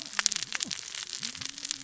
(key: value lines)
label: biophony, cascading saw
recorder: SoundTrap 600 or HydroMoth